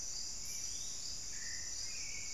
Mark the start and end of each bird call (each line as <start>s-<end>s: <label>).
0.0s-2.3s: Black-billed Thrush (Turdus ignobilis)